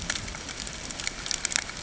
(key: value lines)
label: ambient
recorder: HydroMoth